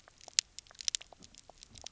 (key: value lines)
label: biophony, pulse
recorder: SoundTrap 300